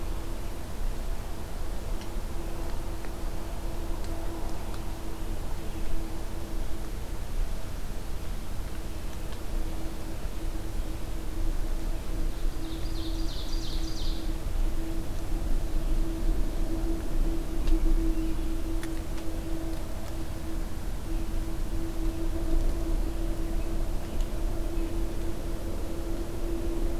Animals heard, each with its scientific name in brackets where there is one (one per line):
Ovenbird (Seiurus aurocapilla)